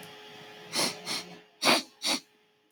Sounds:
Sniff